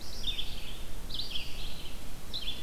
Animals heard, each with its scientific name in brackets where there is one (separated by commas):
Red-eyed Vireo (Vireo olivaceus)